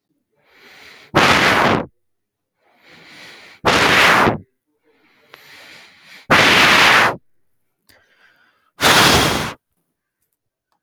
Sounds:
Sigh